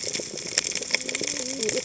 {"label": "biophony, cascading saw", "recorder": "HydroMoth"}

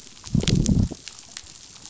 {"label": "biophony, growl", "recorder": "SoundTrap 500"}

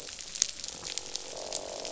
{"label": "biophony, croak", "recorder": "SoundTrap 500"}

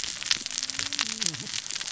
{"label": "biophony, cascading saw", "recorder": "SoundTrap 600 or HydroMoth"}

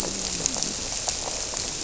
{"label": "biophony", "recorder": "SoundTrap 300"}
{"label": "biophony, grouper", "recorder": "SoundTrap 300"}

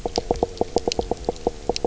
{"label": "biophony, knock croak", "recorder": "SoundTrap 300"}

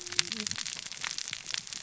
{"label": "biophony, cascading saw", "recorder": "SoundTrap 600 or HydroMoth"}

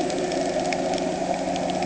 {"label": "anthrophony, boat engine", "recorder": "HydroMoth"}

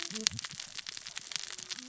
{"label": "biophony, cascading saw", "recorder": "SoundTrap 600 or HydroMoth"}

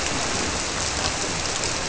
{"label": "biophony", "recorder": "SoundTrap 300"}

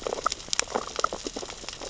{"label": "biophony, sea urchins (Echinidae)", "recorder": "SoundTrap 600 or HydroMoth"}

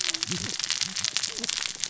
{"label": "biophony, cascading saw", "recorder": "SoundTrap 600 or HydroMoth"}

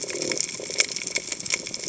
{"label": "biophony", "recorder": "HydroMoth"}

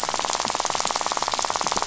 {"label": "biophony, rattle", "recorder": "SoundTrap 500"}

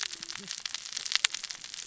{"label": "biophony, cascading saw", "recorder": "SoundTrap 600 or HydroMoth"}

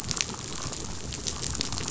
{"label": "biophony, damselfish", "recorder": "SoundTrap 500"}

